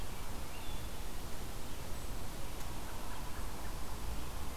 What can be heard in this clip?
Red-eyed Vireo